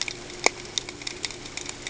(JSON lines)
{"label": "ambient", "recorder": "HydroMoth"}